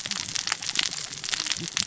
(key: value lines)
label: biophony, cascading saw
recorder: SoundTrap 600 or HydroMoth